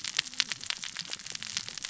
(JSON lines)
{"label": "biophony, cascading saw", "recorder": "SoundTrap 600 or HydroMoth"}